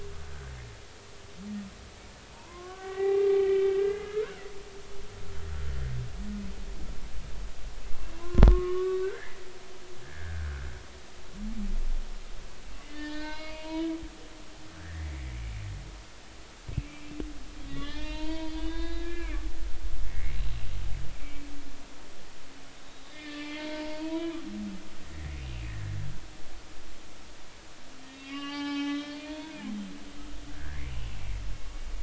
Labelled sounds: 0.2	0.5	humpback whale, 1.4 to 1.7 kHz
2.3	4.4	humpback whale, 0.80 to 3.2 kHz
8.2	9.4	humpback whale, 0.96 to 3.8 kHz
10.0	10.7	humpback whale, 1.4 to 1.8 kHz
12.8	14.0	humpback whale, 0.90 to 5.2 kHz
14.8	15.4	humpback whale, 1.6 to 2.3 kHz
16.8	17.2	humpback whale, 2.3 to 2.7 kHz
17.7	19.4	humpback whale, 0.86 to 4.9 kHz
20.1	20.4	humpback whale, 1.8 to 2.3 kHz
21.1	21.4	humpback whale, 2.2 to 2.5 kHz
22.8	24.4	humpback whale, 0.86 to 4.6 kHz
28.1	29.5	humpback whale, 0.80 to 5.5 kHz
30.5	30.8	humpback whale, 1.5 to 1.9 kHz

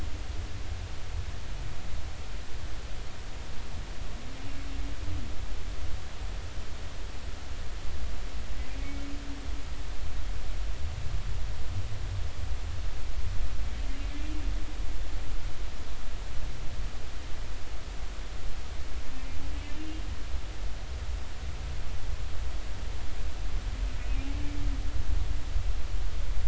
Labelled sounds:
8.7	9.1	humpback whale, 2.2 to 2.3 kHz
19.8	20.0	humpback whale, 2.8 to 2.9 kHz

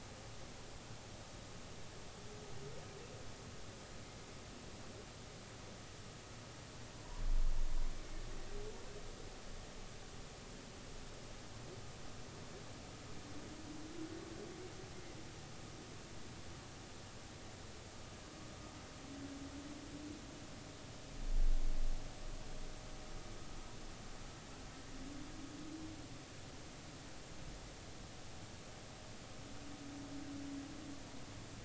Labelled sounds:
7.9	8.2	humpback whale, 2.1 to 2.3 kHz

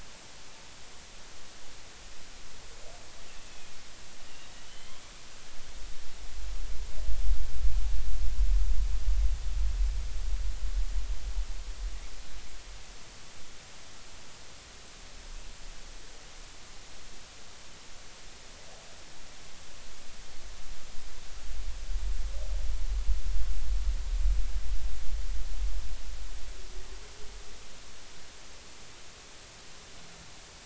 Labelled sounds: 3.5	5.1	killer whale, northern resident, 2.0 to 3.4 kHz

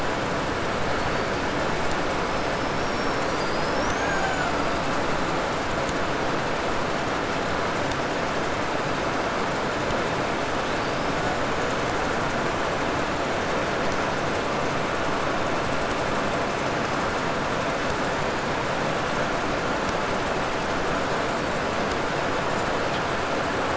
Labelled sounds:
0.8	1.7	killer whale, 3.8 to 8.0 kHz
2.0	3.6	killer whale, 4.6 to 6.4 kHz
3.2	5.0	killer whale, Bigg's (transient), 0.42 to 8.0 kHz
10.4	11.8	killer whale, 2.9 to 7.4 kHz

